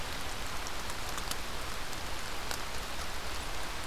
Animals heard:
forest ambience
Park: Marsh-Billings-Rockefeller National Historical Park